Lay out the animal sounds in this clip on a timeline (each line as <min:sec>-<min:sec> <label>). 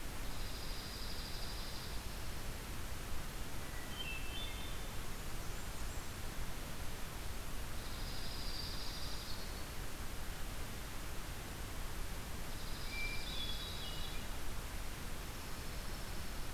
0:00.2-0:02.1 Dark-eyed Junco (Junco hyemalis)
0:03.5-0:04.9 Hermit Thrush (Catharus guttatus)
0:04.8-0:06.4 Blackburnian Warbler (Setophaga fusca)
0:07.7-0:09.5 Dark-eyed Junco (Junco hyemalis)
0:08.8-0:09.9 Hermit Thrush (Catharus guttatus)
0:12.4-0:14.2 Dark-eyed Junco (Junco hyemalis)
0:12.8-0:14.3 Hermit Thrush (Catharus guttatus)
0:14.9-0:16.5 Dark-eyed Junco (Junco hyemalis)